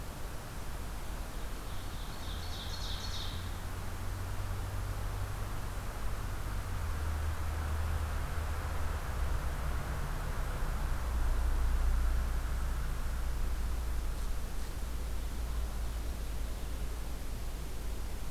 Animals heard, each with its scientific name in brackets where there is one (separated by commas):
Ovenbird (Seiurus aurocapilla)